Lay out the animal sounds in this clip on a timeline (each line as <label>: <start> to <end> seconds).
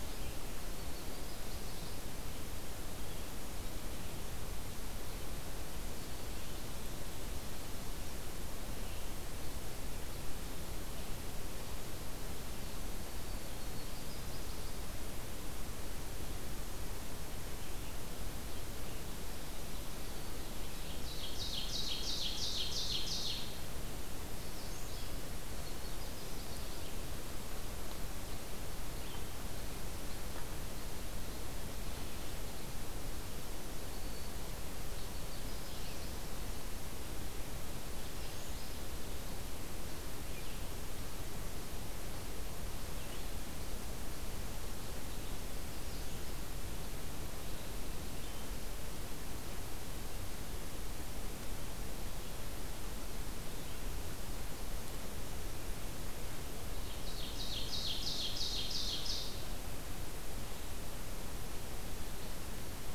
Yellow-rumped Warbler (Setophaga coronata): 0.4 to 2.0 seconds
Black-throated Green Warbler (Setophaga virens): 5.7 to 6.5 seconds
Yellow-rumped Warbler (Setophaga coronata): 12.7 to 14.6 seconds
Ovenbird (Seiurus aurocapilla): 20.7 to 23.7 seconds
Magnolia Warbler (Setophaga magnolia): 24.3 to 25.2 seconds
Yellow-rumped Warbler (Setophaga coronata): 25.4 to 26.9 seconds
Black-throated Green Warbler (Setophaga virens): 33.6 to 34.5 seconds
Yellow-rumped Warbler (Setophaga coronata): 34.7 to 36.4 seconds
Magnolia Warbler (Setophaga magnolia): 37.8 to 38.9 seconds
Ovenbird (Seiurus aurocapilla): 56.7 to 59.5 seconds